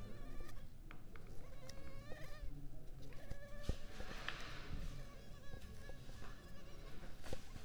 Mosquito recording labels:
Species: Culex pipiens complex; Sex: female; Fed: unfed; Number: one; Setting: cup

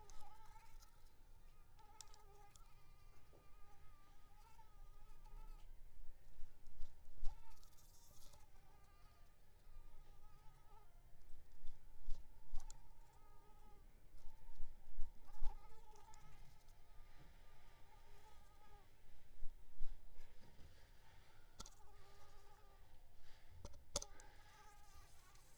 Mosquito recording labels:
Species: Anopheles arabiensis; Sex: male; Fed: unfed; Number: one; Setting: cup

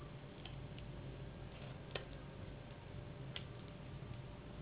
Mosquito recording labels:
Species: Anopheles gambiae s.s.; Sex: female; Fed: unfed; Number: one; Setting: insect culture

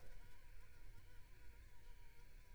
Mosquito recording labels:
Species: Anopheles arabiensis; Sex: female; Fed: unfed; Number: one; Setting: cup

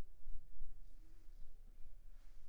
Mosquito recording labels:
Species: Culex pipiens complex; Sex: female; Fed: unfed; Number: one; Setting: cup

